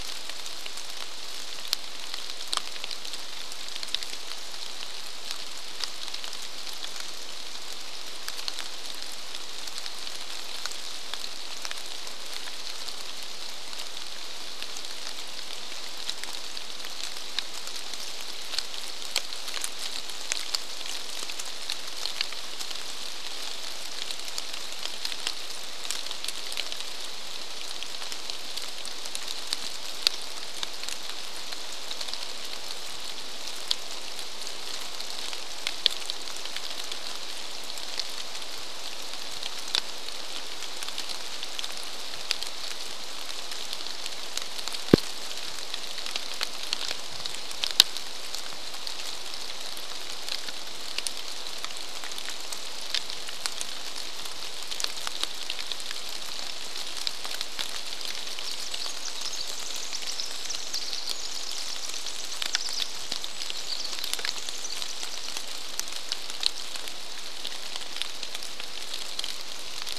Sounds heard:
rain
Pacific Wren song

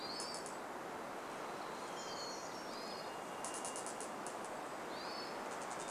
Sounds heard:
Hermit Thrush call
Varied Thrush song
Chestnut-backed Chickadee call
Hermit Thrush song

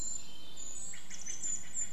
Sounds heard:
Steller's Jay call
Pacific Wren song
Brown Creeper call
Hermit Thrush song

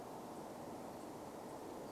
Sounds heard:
unidentified sound

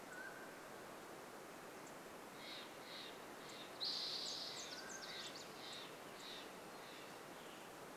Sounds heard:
Spotted Towhee song
unidentified bird chip note
Western Tanager song
Mountain Quail call
Nashville Warbler song
Steller's Jay call

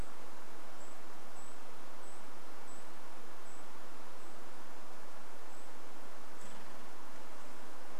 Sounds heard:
Golden-crowned Kinglet call

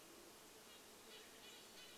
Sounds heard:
Band-tailed Pigeon song
Red-breasted Nuthatch song
Brown Creeper call
insect buzz

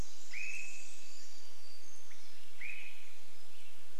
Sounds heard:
Swainson's Thrush call
Western Tanager song
warbler song
Pacific Wren song

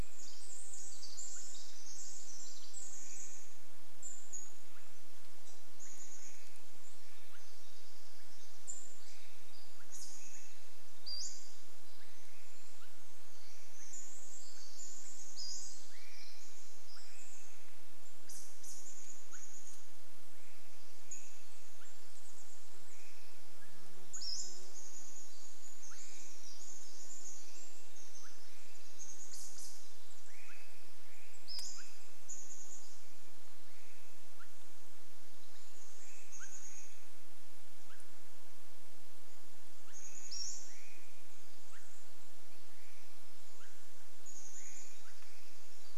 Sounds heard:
Swainson's Thrush call
chipmunk chirp
Pacific-slope Flycatcher call
Chestnut-backed Chickadee call
Pacific Wren song

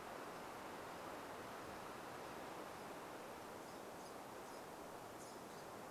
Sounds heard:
unidentified bird chip note

